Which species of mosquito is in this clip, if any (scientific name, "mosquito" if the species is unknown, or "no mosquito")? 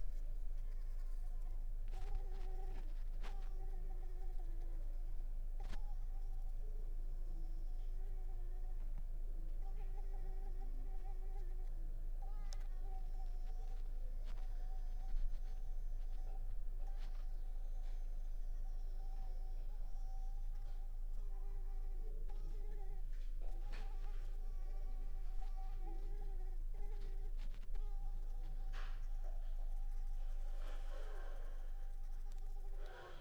Culex pipiens complex